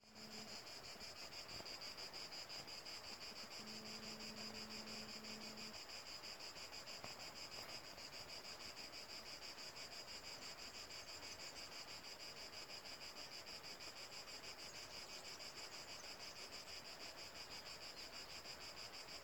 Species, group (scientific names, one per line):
Cicada orni
Cicadidae